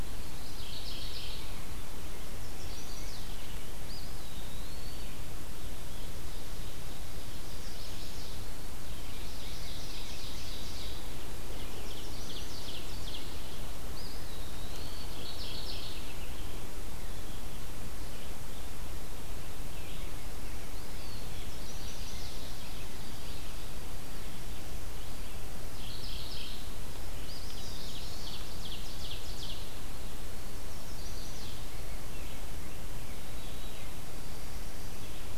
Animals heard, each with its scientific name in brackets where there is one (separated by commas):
Ovenbird (Seiurus aurocapilla), Eastern Wood-Pewee (Contopus virens), Chestnut-sided Warbler (Setophaga pensylvanica), White-throated Sparrow (Zonotrichia albicollis), Mourning Warbler (Geothlypis philadelphia), Scarlet Tanager (Piranga olivacea), Red-eyed Vireo (Vireo olivaceus)